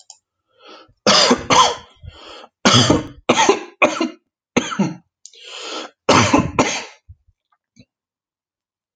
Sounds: Cough